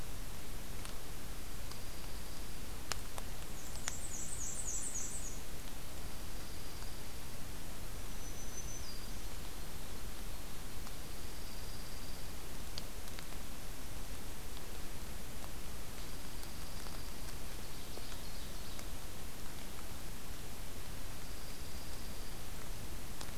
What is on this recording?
Dark-eyed Junco, Black-and-white Warbler, Black-throated Green Warbler, Ovenbird